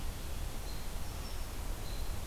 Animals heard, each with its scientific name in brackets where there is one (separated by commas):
American Robin (Turdus migratorius)